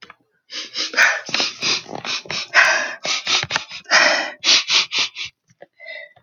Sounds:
Sniff